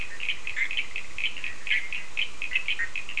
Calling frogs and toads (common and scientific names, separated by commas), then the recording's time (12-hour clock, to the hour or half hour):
Cochran's lime tree frog (Sphaenorhynchus surdus), Bischoff's tree frog (Boana bischoffi)
3:30am